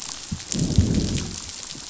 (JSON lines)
{"label": "biophony, growl", "recorder": "SoundTrap 500"}